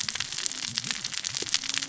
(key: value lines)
label: biophony, cascading saw
recorder: SoundTrap 600 or HydroMoth